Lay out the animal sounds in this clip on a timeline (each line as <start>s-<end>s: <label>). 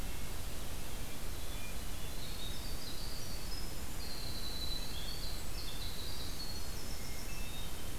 0.0s-1.2s: Red-breasted Nuthatch (Sitta canadensis)
1.0s-2.2s: Hermit Thrush (Catharus guttatus)
1.9s-7.4s: Winter Wren (Troglodytes hiemalis)
6.9s-8.0s: Hermit Thrush (Catharus guttatus)